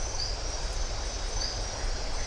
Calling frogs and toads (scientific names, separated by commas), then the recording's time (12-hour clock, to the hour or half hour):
Adenomera marmorata, Leptodactylus notoaktites
6:30pm